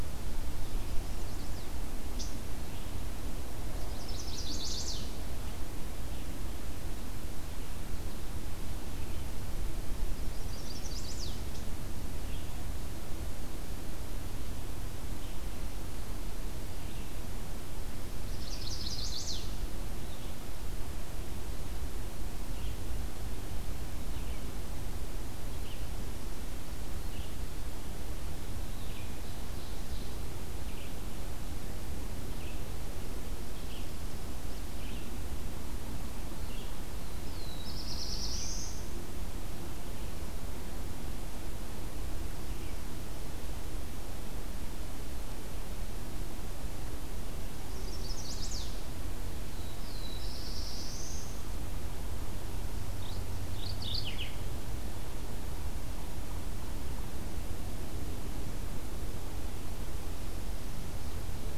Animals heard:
Chestnut-sided Warbler (Setophaga pensylvanica), Black-throated Blue Warbler (Setophaga caerulescens), Mourning Warbler (Geothlypis philadelphia), Eastern Wood-Pewee (Contopus virens), Red-eyed Vireo (Vireo olivaceus)

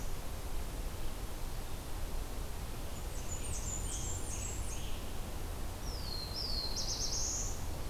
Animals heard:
Blackburnian Warbler (Setophaga fusca), Black-throated Blue Warbler (Setophaga caerulescens), Scarlet Tanager (Piranga olivacea)

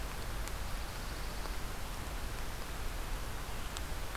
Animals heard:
Pine Warbler (Setophaga pinus)

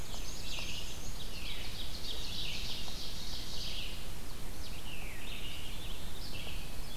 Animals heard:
Ovenbird (Seiurus aurocapilla), Red-eyed Vireo (Vireo olivaceus), Veery (Catharus fuscescens), Black-and-white Warbler (Mniotilta varia), Black-throated Blue Warbler (Setophaga caerulescens)

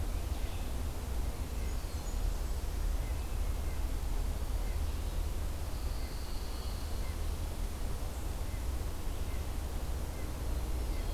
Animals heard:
Blackburnian Warbler (Setophaga fusca), Red-breasted Nuthatch (Sitta canadensis), Pine Warbler (Setophaga pinus)

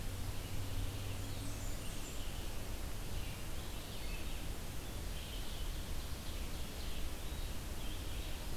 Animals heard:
Red-eyed Vireo (Vireo olivaceus), Blackburnian Warbler (Setophaga fusca), Ovenbird (Seiurus aurocapilla)

